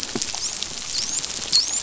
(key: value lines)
label: biophony, dolphin
recorder: SoundTrap 500